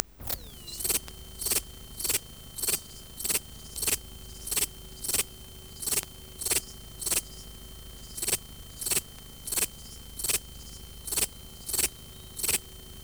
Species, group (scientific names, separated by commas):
Pholidoptera macedonica, Orthoptera